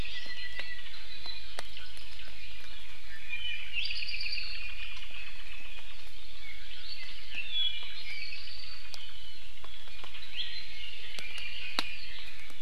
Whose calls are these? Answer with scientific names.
Himatione sanguinea, Drepanis coccinea, Leiothrix lutea